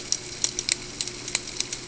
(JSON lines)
{"label": "ambient", "recorder": "HydroMoth"}